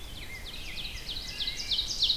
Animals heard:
Wood Thrush (Hylocichla mustelina)
Ovenbird (Seiurus aurocapilla)
Red-eyed Vireo (Vireo olivaceus)
Rose-breasted Grosbeak (Pheucticus ludovicianus)

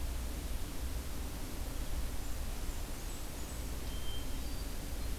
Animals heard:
Hermit Thrush (Catharus guttatus)
Blackburnian Warbler (Setophaga fusca)

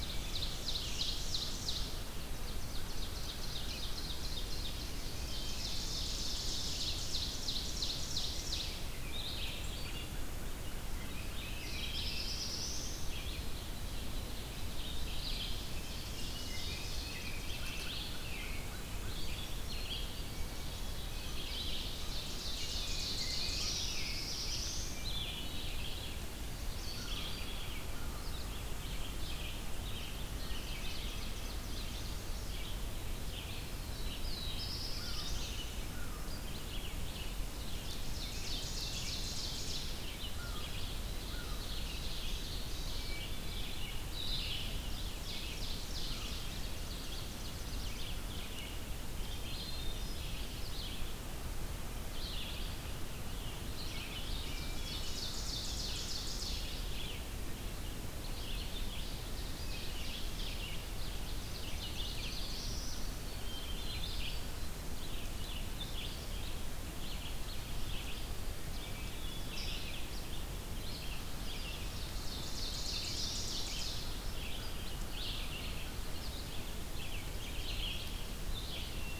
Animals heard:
Chestnut-sided Warbler (Setophaga pensylvanica)
Black-throated Blue Warbler (Setophaga caerulescens)
American Crow (Corvus brachyrhynchos)
Black-throated Green Warbler (Setophaga virens)
Red-eyed Vireo (Vireo olivaceus)
Hermit Thrush (Catharus guttatus)
Ovenbird (Seiurus aurocapilla)
American Robin (Turdus migratorius)

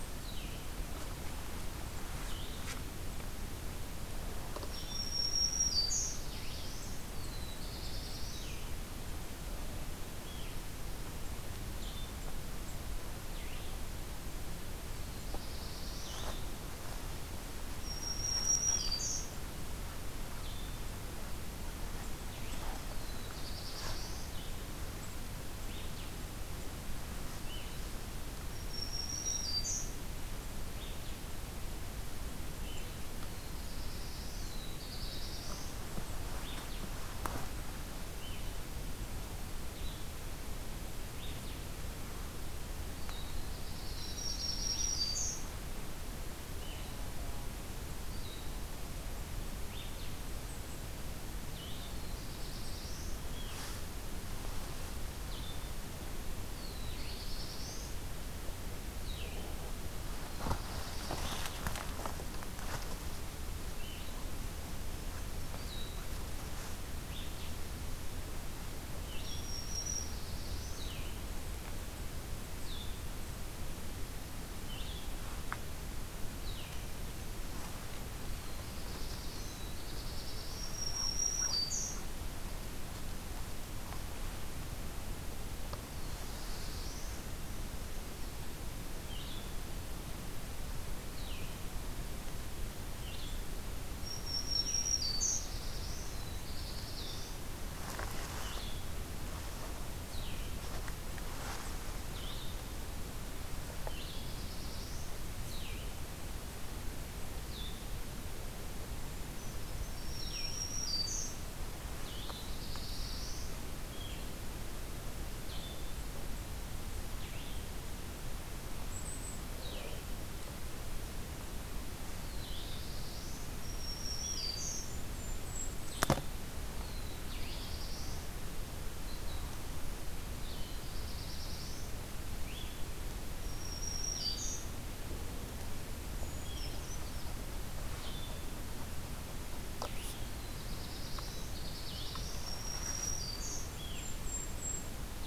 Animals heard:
Black-throated Blue Warbler (Setophaga caerulescens)
Blue-headed Vireo (Vireo solitarius)
Black-throated Green Warbler (Setophaga virens)
Brown Creeper (Certhia americana)
Golden-crowned Kinglet (Regulus satrapa)

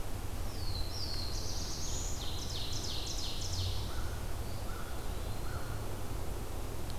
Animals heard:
Ovenbird (Seiurus aurocapilla)
Black-throated Blue Warbler (Setophaga caerulescens)
American Crow (Corvus brachyrhynchos)
Eastern Wood-Pewee (Contopus virens)

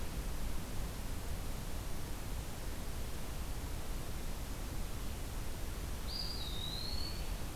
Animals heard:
Eastern Wood-Pewee (Contopus virens)

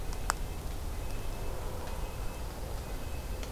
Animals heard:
Red-breasted Nuthatch (Sitta canadensis)

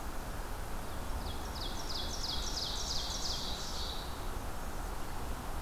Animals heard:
Ovenbird (Seiurus aurocapilla)

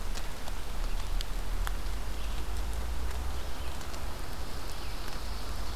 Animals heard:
Red-eyed Vireo (Vireo olivaceus)
Ovenbird (Seiurus aurocapilla)
Pine Warbler (Setophaga pinus)

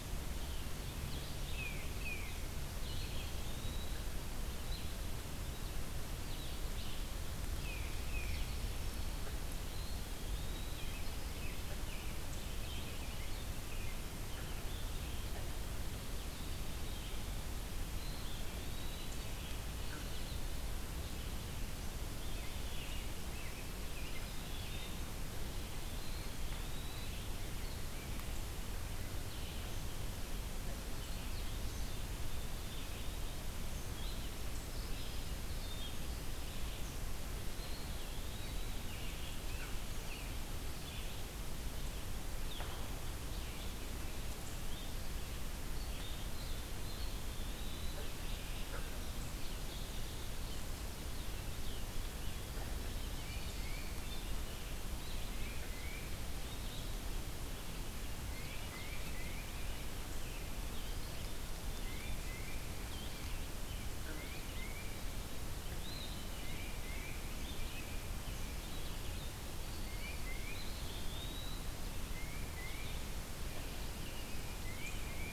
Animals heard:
Blue-headed Vireo (Vireo solitarius)
Eastern Wood-Pewee (Contopus virens)
American Robin (Turdus migratorius)
Tufted Titmouse (Baeolophus bicolor)

